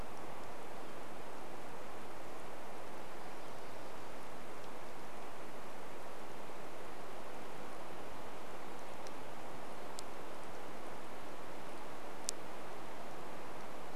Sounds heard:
forest ambience